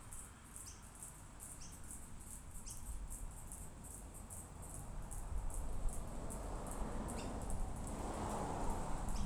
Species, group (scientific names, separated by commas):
Yoyetta australicta, Cicadidae